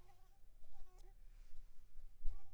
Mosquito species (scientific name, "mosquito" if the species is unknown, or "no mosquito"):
Anopheles arabiensis